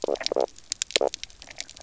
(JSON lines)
{"label": "biophony, knock croak", "recorder": "SoundTrap 300"}